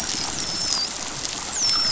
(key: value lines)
label: biophony, dolphin
recorder: SoundTrap 500